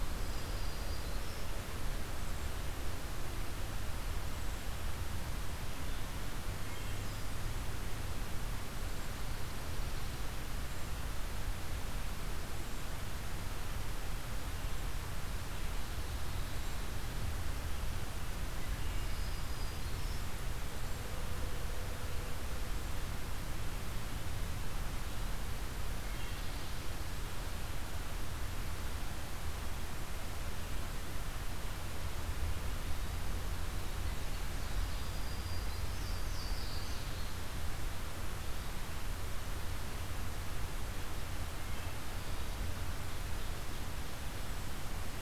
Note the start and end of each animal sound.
0.0s-1.5s: Black-throated Green Warbler (Setophaga virens)
6.5s-7.0s: Wood Thrush (Hylocichla mustelina)
19.0s-20.3s: Black-throated Green Warbler (Setophaga virens)
25.9s-26.7s: Wood Thrush (Hylocichla mustelina)
34.7s-36.0s: Black-throated Green Warbler (Setophaga virens)
35.8s-37.5s: Louisiana Waterthrush (Parkesia motacilla)

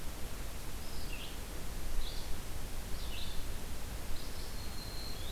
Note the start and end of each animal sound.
0.0s-5.3s: Red-eyed Vireo (Vireo olivaceus)
4.5s-5.3s: Black-throated Green Warbler (Setophaga virens)

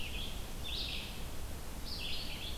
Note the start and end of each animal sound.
0.0s-2.6s: Red-eyed Vireo (Vireo olivaceus)

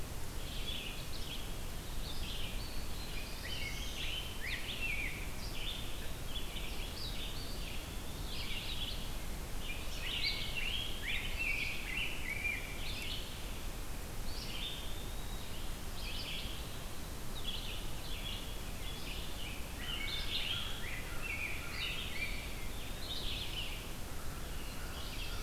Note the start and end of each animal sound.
0.2s-25.4s: Red-eyed Vireo (Vireo olivaceus)
2.8s-4.2s: Black-throated Blue Warbler (Setophaga caerulescens)
3.0s-5.4s: Rose-breasted Grosbeak (Pheucticus ludovicianus)
7.2s-8.4s: Eastern Wood-Pewee (Contopus virens)
9.7s-13.2s: Rose-breasted Grosbeak (Pheucticus ludovicianus)
14.3s-15.5s: Eastern Wood-Pewee (Contopus virens)
19.0s-22.6s: Rose-breasted Grosbeak (Pheucticus ludovicianus)
19.7s-22.0s: American Crow (Corvus brachyrhynchos)
24.1s-25.4s: American Crow (Corvus brachyrhynchos)
24.3s-25.4s: Black-throated Blue Warbler (Setophaga caerulescens)

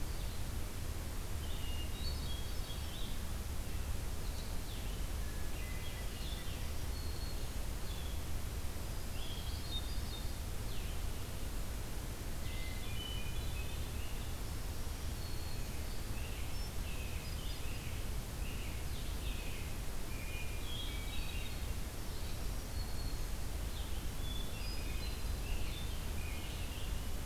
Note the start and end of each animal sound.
0.0s-27.2s: Blue-headed Vireo (Vireo solitarius)
1.4s-3.0s: Hermit Thrush (Catharus guttatus)
5.2s-6.7s: Hermit Thrush (Catharus guttatus)
6.4s-7.6s: Black-throated Green Warbler (Setophaga virens)
8.5s-9.8s: Black-throated Green Warbler (Setophaga virens)
9.0s-10.5s: Hermit Thrush (Catharus guttatus)
12.4s-13.9s: Hermit Thrush (Catharus guttatus)
14.4s-15.9s: Black-throated Green Warbler (Setophaga virens)
15.9s-21.6s: American Robin (Turdus migratorius)
16.5s-18.0s: Hermit Thrush (Catharus guttatus)
20.3s-21.8s: Hermit Thrush (Catharus guttatus)
21.9s-23.4s: Black-throated Green Warbler (Setophaga virens)
24.1s-25.5s: Hermit Thrush (Catharus guttatus)
24.7s-26.6s: American Robin (Turdus migratorius)

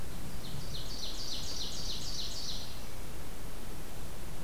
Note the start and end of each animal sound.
0.0s-2.8s: Ovenbird (Seiurus aurocapilla)
2.4s-3.3s: Hermit Thrush (Catharus guttatus)

